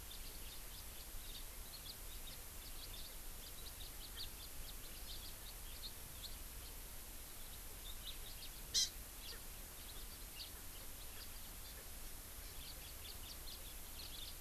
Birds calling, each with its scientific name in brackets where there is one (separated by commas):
House Finch (Haemorhous mexicanus), Hawaii Amakihi (Chlorodrepanis virens)